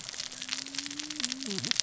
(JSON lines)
{"label": "biophony, cascading saw", "recorder": "SoundTrap 600 or HydroMoth"}